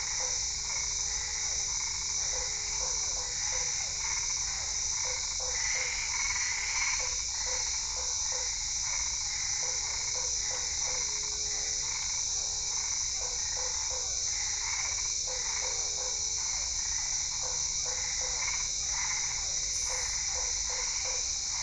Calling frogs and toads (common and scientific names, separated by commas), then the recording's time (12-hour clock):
Physalaemus cuvieri, Boana albopunctata, Usina tree frog (Boana lundii)
7:30pm